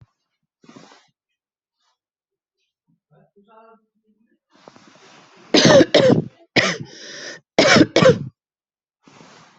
{"expert_labels": [{"quality": "good", "cough_type": "wet", "dyspnea": false, "wheezing": false, "stridor": false, "choking": false, "congestion": true, "nothing": false, "diagnosis": "obstructive lung disease", "severity": "mild"}], "age": 50, "gender": "female", "respiratory_condition": false, "fever_muscle_pain": false, "status": "symptomatic"}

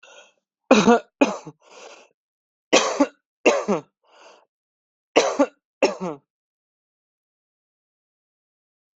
{"expert_labels": [{"quality": "good", "cough_type": "dry", "dyspnea": false, "wheezing": false, "stridor": false, "choking": false, "congestion": false, "nothing": true, "diagnosis": "upper respiratory tract infection", "severity": "mild"}], "age": 26, "gender": "male", "respiratory_condition": false, "fever_muscle_pain": false, "status": "healthy"}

